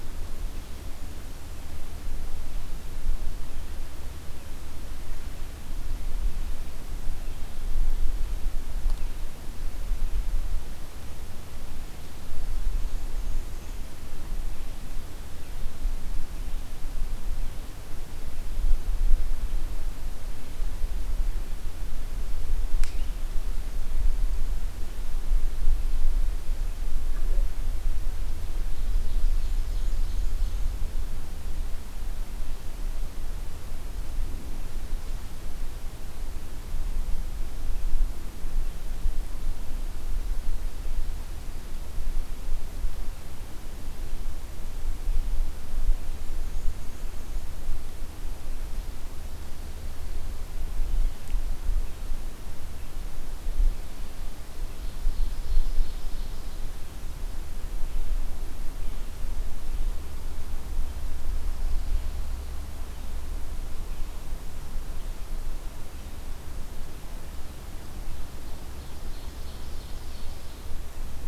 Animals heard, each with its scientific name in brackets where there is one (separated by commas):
Black-and-white Warbler (Mniotilta varia), Ovenbird (Seiurus aurocapilla)